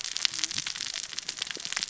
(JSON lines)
{"label": "biophony, cascading saw", "recorder": "SoundTrap 600 or HydroMoth"}